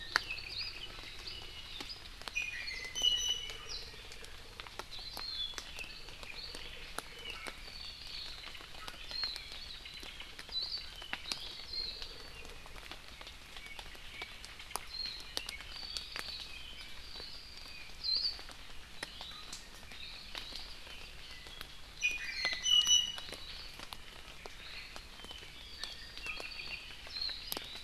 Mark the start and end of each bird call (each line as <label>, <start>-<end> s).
Apapane (Himatione sanguinea), 0.0-1.0 s
Iiwi (Drepanis coccinea), 2.3-3.7 s
Warbling White-eye (Zosterops japonicus), 9.1-9.4 s
Warbling White-eye (Zosterops japonicus), 10.5-10.9 s
Warbling White-eye (Zosterops japonicus), 11.7-12.0 s
Warbling White-eye (Zosterops japonicus), 14.8-15.4 s
Warbling White-eye (Zosterops japonicus), 15.7-16.5 s
Hawaii Akepa (Loxops coccineus), 18.0-18.3 s
Iiwi (Drepanis coccinea), 18.9-19.6 s
Iiwi (Drepanis coccinea), 21.9-23.6 s
Apapane (Himatione sanguinea), 25.1-26.9 s
Warbling White-eye (Zosterops japonicus), 27.1-27.4 s